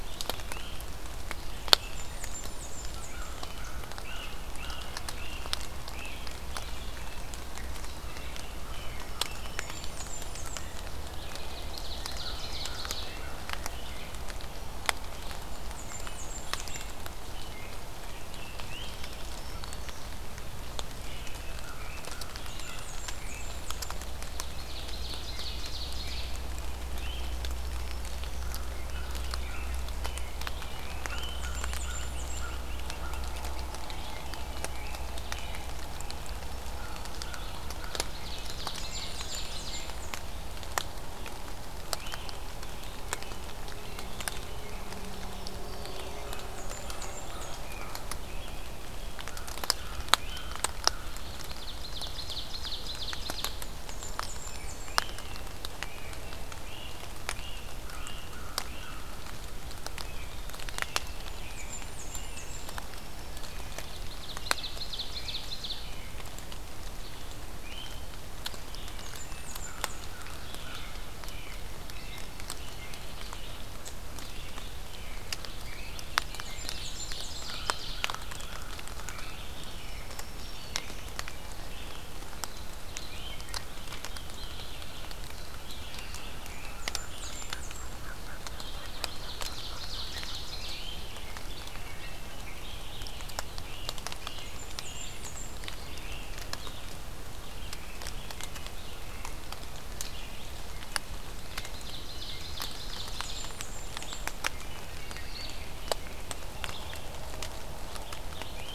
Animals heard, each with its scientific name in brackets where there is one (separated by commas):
American Crow (Corvus brachyrhynchos), Black-throated Green Warbler (Setophaga virens), American Robin (Turdus migratorius), Blackburnian Warbler (Setophaga fusca), Great Crested Flycatcher (Myiarchus crinitus), Ovenbird (Seiurus aurocapilla), Red-eyed Vireo (Vireo olivaceus)